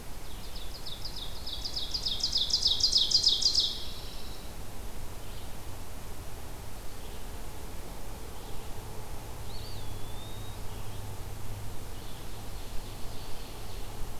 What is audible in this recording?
Ovenbird, Pine Warbler, Red-eyed Vireo, Eastern Wood-Pewee